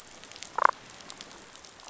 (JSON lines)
{"label": "biophony, damselfish", "recorder": "SoundTrap 500"}